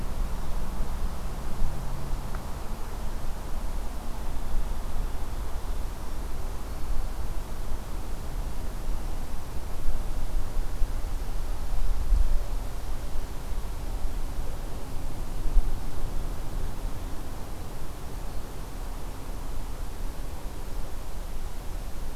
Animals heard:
forest ambience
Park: Acadia National Park